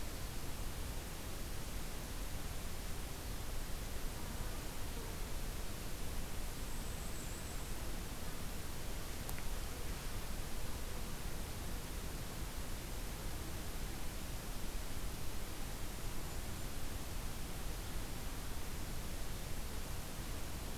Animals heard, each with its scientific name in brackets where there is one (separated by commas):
Golden-crowned Kinglet (Regulus satrapa)